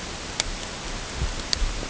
{"label": "ambient", "recorder": "HydroMoth"}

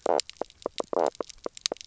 {"label": "biophony, knock croak", "recorder": "SoundTrap 300"}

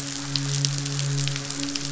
{"label": "biophony, midshipman", "recorder": "SoundTrap 500"}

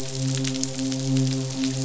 {"label": "biophony, midshipman", "recorder": "SoundTrap 500"}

